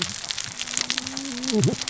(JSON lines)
{"label": "biophony, cascading saw", "recorder": "SoundTrap 600 or HydroMoth"}